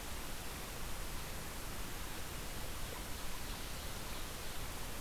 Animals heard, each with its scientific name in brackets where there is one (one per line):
Ovenbird (Seiurus aurocapilla)